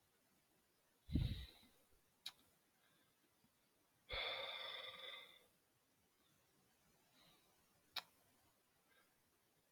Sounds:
Sigh